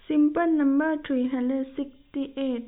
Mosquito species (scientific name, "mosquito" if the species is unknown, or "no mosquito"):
no mosquito